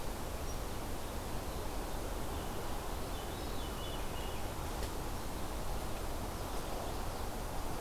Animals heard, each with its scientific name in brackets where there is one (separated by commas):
Veery (Catharus fuscescens), Chestnut-sided Warbler (Setophaga pensylvanica)